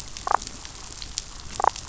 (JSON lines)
{"label": "biophony, damselfish", "recorder": "SoundTrap 500"}